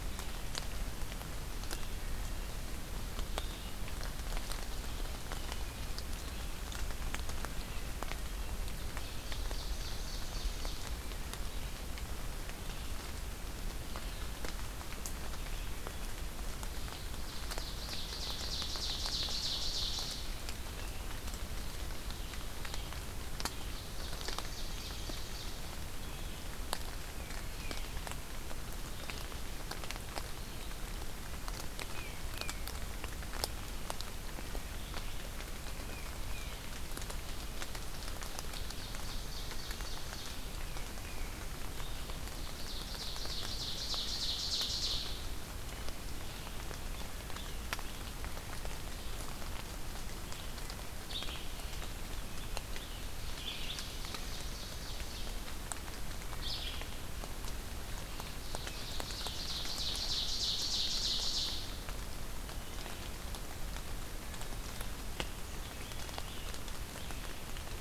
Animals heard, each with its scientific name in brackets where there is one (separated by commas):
Tufted Titmouse (Baeolophus bicolor), Wood Thrush (Hylocichla mustelina), Red-eyed Vireo (Vireo olivaceus), Ovenbird (Seiurus aurocapilla)